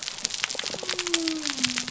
{"label": "biophony", "recorder": "SoundTrap 300"}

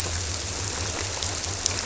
{"label": "biophony", "recorder": "SoundTrap 300"}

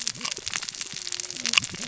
{"label": "biophony, cascading saw", "recorder": "SoundTrap 600 or HydroMoth"}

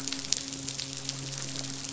{"label": "biophony, midshipman", "recorder": "SoundTrap 500"}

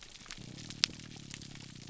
{"label": "biophony, grouper groan", "recorder": "SoundTrap 300"}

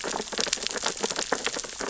{"label": "biophony, sea urchins (Echinidae)", "recorder": "SoundTrap 600 or HydroMoth"}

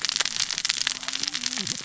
{"label": "biophony, cascading saw", "recorder": "SoundTrap 600 or HydroMoth"}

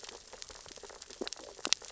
{"label": "biophony, sea urchins (Echinidae)", "recorder": "SoundTrap 600 or HydroMoth"}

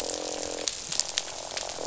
{"label": "biophony, croak", "recorder": "SoundTrap 500"}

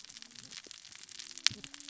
{"label": "biophony, cascading saw", "recorder": "SoundTrap 600 or HydroMoth"}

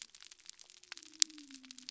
{"label": "biophony", "recorder": "SoundTrap 300"}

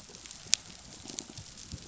{"label": "biophony", "recorder": "SoundTrap 500"}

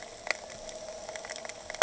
{"label": "anthrophony, boat engine", "recorder": "HydroMoth"}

